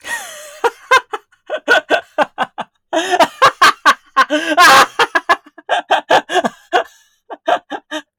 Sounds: Laughter